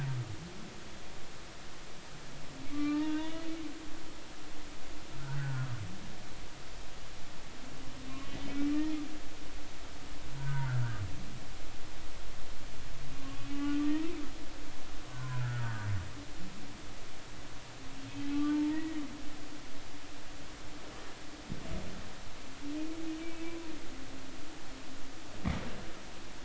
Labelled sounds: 2.7	3.5	humpback whale, 1.1 to 3.8 kHz
5.4	5.7	humpback whale, 1.4 to 1.6 kHz
8.1	8.7	humpback whale, 2.2 to 2.8 kHz
10.3	10.8	humpback whale, 1.3 to 1.6 kHz
13.2	14.1	humpback whale, 1.0 to 2.9 kHz
15.1	15.7	humpback whale, 0.96 to 1.9 kHz
18.3	19.0	humpback whale, 0.86 to 2.0 kHz
23.4	23.7	humpback whale, 0.93 to 1.1 kHz

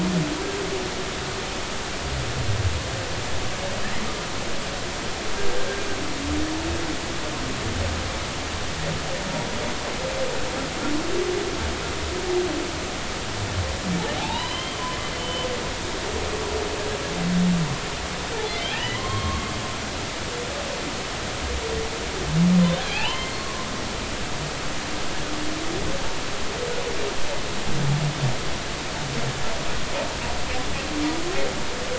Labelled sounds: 14.2	15.5	humpback whale, 0.80 to 4.1 kHz
18.7	19.5	humpback whale, 0.96 to 4.4 kHz
22.9	23.7	humpback whale, 0.80 to 3.2 kHz

